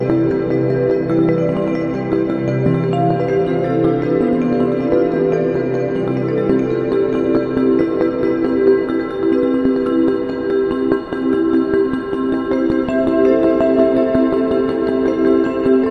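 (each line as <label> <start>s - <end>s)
Raindrops fall rhythmically on wood. 0.0s - 15.9s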